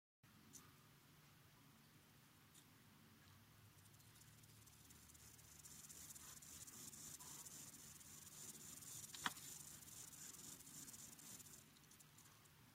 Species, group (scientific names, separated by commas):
Gomphocerippus rufus, Orthoptera